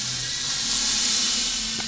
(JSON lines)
{"label": "anthrophony, boat engine", "recorder": "SoundTrap 500"}